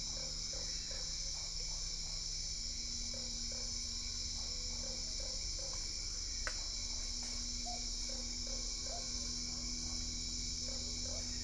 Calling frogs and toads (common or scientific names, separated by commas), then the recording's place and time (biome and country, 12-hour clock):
Usina tree frog
Cerrado, Brazil, 7:30pm